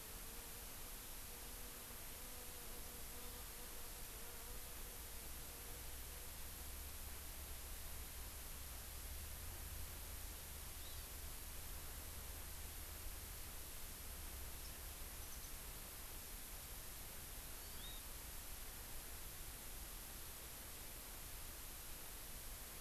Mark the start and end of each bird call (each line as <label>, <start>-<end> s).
Hawaii Amakihi (Chlorodrepanis virens), 10.8-11.1 s
Warbling White-eye (Zosterops japonicus), 14.6-14.7 s
Warbling White-eye (Zosterops japonicus), 15.2-15.5 s
Hawaii Amakihi (Chlorodrepanis virens), 17.4-18.0 s